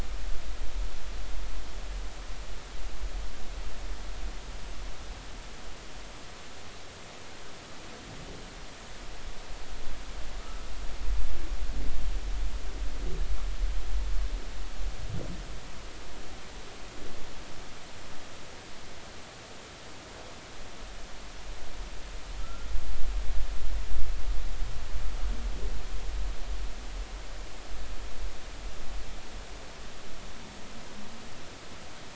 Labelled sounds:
10.4	10.7	humpback whale, 1.2 to 1.6 kHz
22.4	22.7	humpback whale, 1.2 to 1.4 kHz

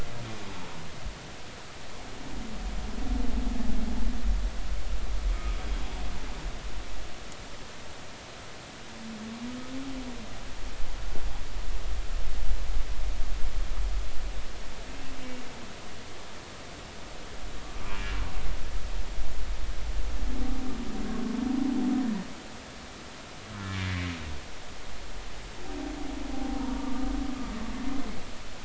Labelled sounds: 17.9	18.1	humpback whale, 2.3 to 2.5 kHz
23.8	24.1	humpback whale, 1.9 to 2.1 kHz
26.3	26.9	humpback whale, 0.80 to 1.0 kHz

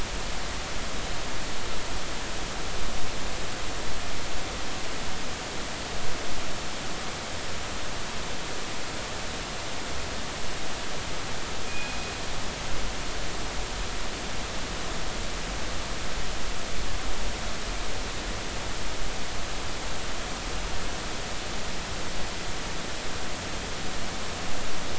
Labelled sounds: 11.6	12.1	killer whale, northern resident, G clan, call N24ii, 2.4 to 2.5 kHz

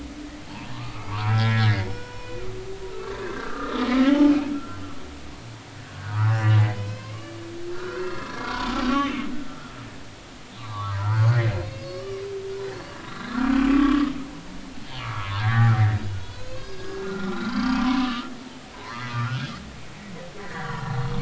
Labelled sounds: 0.5	2.5	humpback whale, 0.83 to 5.5 kHz
2.9	4.8	humpback whale, 0.80 to 3.2 kHz
6.0	9.2	humpback whale, 0.90 to 3.6 kHz
10.5	11.3	humpback whale, 0.80 to 4.1 kHz
11.5	12.2	humpback whale, 1.1 to 5.0 kHz
12.6	13.4	humpback whale, 3.8 to 4.7 kHz
13.7	14.1	humpback whale, 1.0 to 1.3 kHz
14.8	15.8	humpback whale, 0.86 to 3.3 kHz
16.2	18.3	humpback whale, 0.93 to 5.1 kHz
18.8	19.5	humpback whale, 0.83 to 2.6 kHz
20.4	21.0	humpback whale, 1.2 to 2.1 kHz

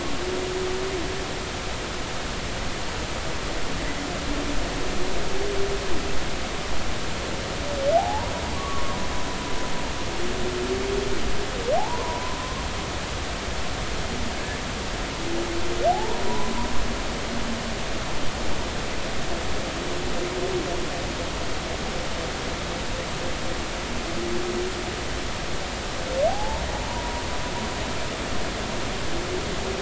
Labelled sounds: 8.0	9.0	humpback whale, 0.80 to 1.2 kHz
11.8	12.6	humpback whale, 0.80 to 1.1 kHz
15.9	16.7	humpback whale, 0.80 to 1.1 kHz
26.3	26.6	humpback whale, 0.80 to 1.0 kHz

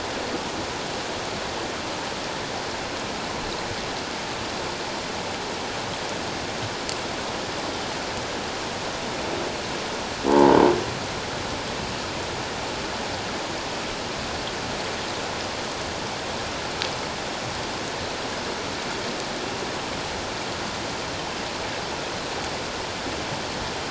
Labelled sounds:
10.3	10.6	croaking sound likely from a nearby submerged object, 0.81 to 1.1 kHz

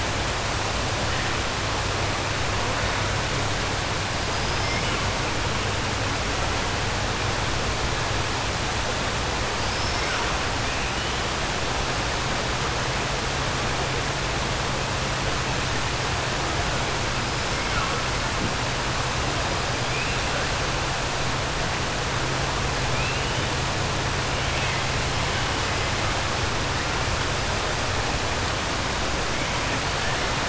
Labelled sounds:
4.3	4.8	killer whale, 4.9 to 5.4 kHz
9.6	10.1	killer whale, 4.7 to 5.5 kHz

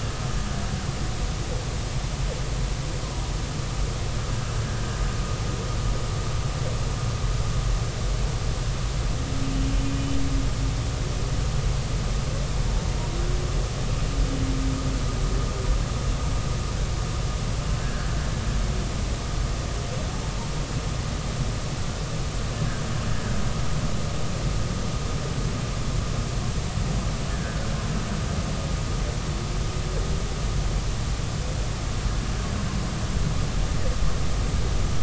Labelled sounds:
17.8	18.1	humpback whale, 1.5 to 1.7 kHz
27.3	27.6	humpback whale, 1.5 to 1.8 kHz

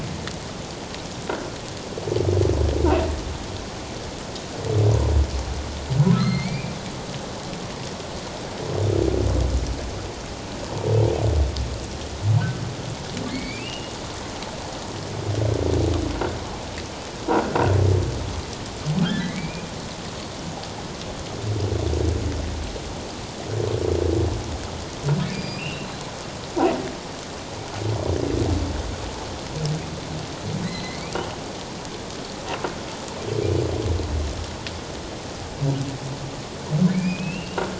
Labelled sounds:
6.1	6.7	humpback whale, 1.2 to 4.4 kHz
13.3	13.9	humpback whale, 2.0 to 4.6 kHz
19.0	19.7	humpback whale, 1.3 to 2.5 kHz
25.2	25.9	humpback whale, 2.1 to 4.9 kHz
30.6	31.0	humpback whale, 1.8 to 4.2 kHz
36.9	37.6	humpback whale, 2.1 to 2.9 kHz

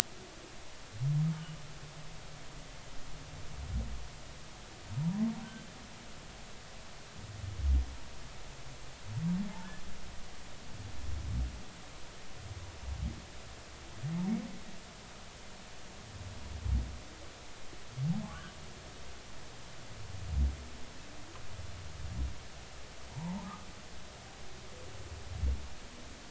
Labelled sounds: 5.0	5.4	humpback whale, 0.80 to 1.2 kHz
18.2	18.5	humpback whale, 0.99 to 1.3 kHz
23.1	23.5	humpback whale, 0.80 to 1.1 kHz

